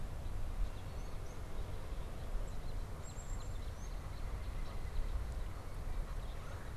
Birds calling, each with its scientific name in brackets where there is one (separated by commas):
Red-bellied Woodpecker (Melanerpes carolinus), Black-capped Chickadee (Poecile atricapillus), Northern Cardinal (Cardinalis cardinalis)